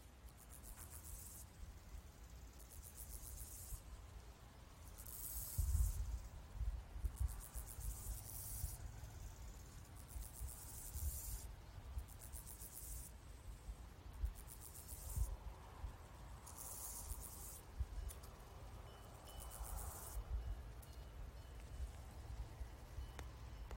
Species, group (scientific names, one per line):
Chorthippus dorsatus
Orthoptera